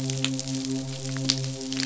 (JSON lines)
{"label": "biophony, midshipman", "recorder": "SoundTrap 500"}